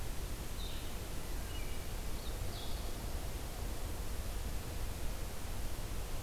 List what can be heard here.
Blue-headed Vireo